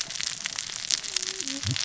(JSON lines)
{"label": "biophony, cascading saw", "recorder": "SoundTrap 600 or HydroMoth"}